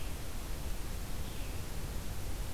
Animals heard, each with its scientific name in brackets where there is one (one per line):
Red-eyed Vireo (Vireo olivaceus)